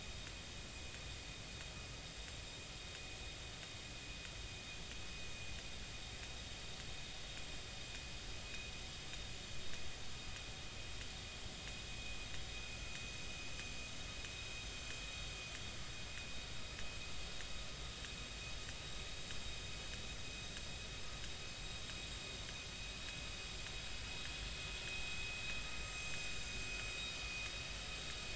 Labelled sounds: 25.9	26.6	vessel noise, 6.1 to 6.4 kHz

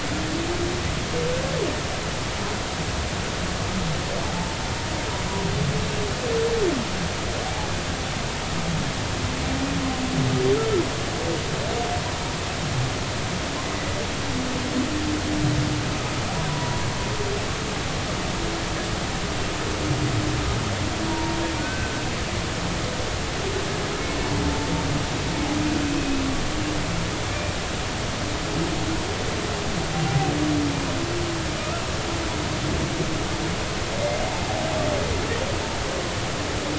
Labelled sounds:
16.5	16.8	humpback whale, 0.93 to 1.0 kHz
21.1	22.0	humpback whale, 0.86 to 2.6 kHz
26.0	26.2	humpback whale, 2.5 to 2.6 kHz
27.3	27.6	humpback whale, 2.3 to 2.4 kHz

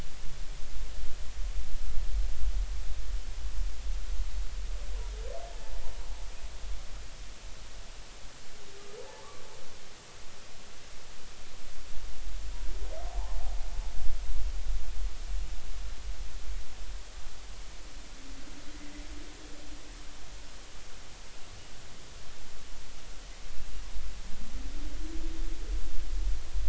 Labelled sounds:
9.1	9.4	humpback whale, 0.80 to 1.2 kHz
13.1	13.4	humpback whale, 0.80 to 1.1 kHz

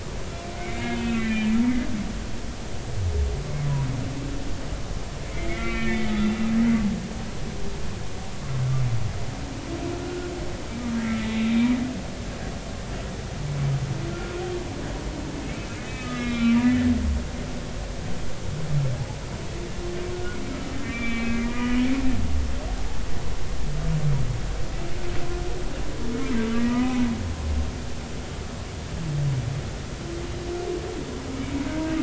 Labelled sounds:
0.6	1.6	humpback whale, 1.6 to 3.1 kHz
5.3	6.3	humpback whale, 1.1 to 2.6 kHz
11.4	11.8	humpback whale, 2.2 to 2.5 kHz
14.1	14.3	humpback whale, 1.3 to 1.5 kHz
15.9	16.9	humpback whale, 1.1 to 4.0 kHz
20.1	21.9	humpback whale, 1.2 to 3.6 kHz
26.6	27.0	humpback whale, 0.93 to 2.0 kHz

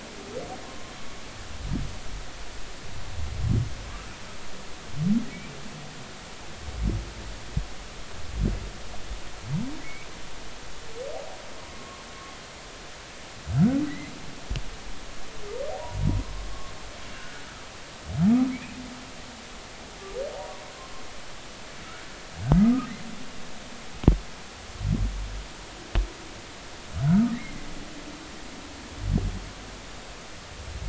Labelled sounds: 0.7	0.9	humpback whale, 0.99 to 1.1 kHz
5.3	5.6	humpback whale, 2.2 to 2.4 kHz
9.8	10.1	humpback whale, 2.1 to 2.6 kHz
11.7	12.0	humpback whale, 1.0 to 1.1 kHz
13.9	14.1	humpback whale, 1.9 to 2.1 kHz
17.1	17.4	humpback whale, 1.4 to 1.7 kHz
18.5	18.8	humpback whale, 2.0 to 2.6 kHz
22.5	22.9	humpback whale, 1.2 to 1.3 kHz
27.0	27.6	humpback whale, 1.1 to 2.2 kHz

